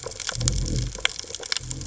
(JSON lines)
{"label": "biophony", "recorder": "HydroMoth"}